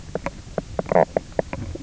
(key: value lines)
label: biophony, knock croak
recorder: SoundTrap 300